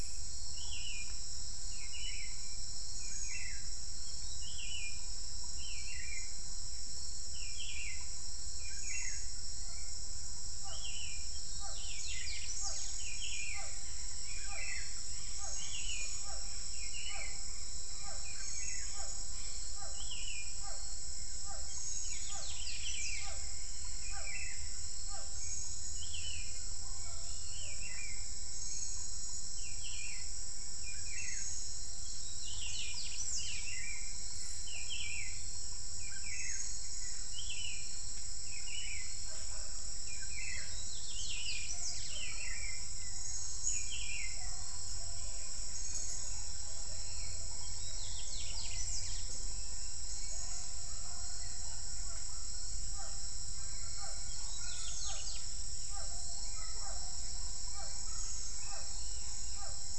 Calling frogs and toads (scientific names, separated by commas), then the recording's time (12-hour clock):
Physalaemus cuvieri
6:30pm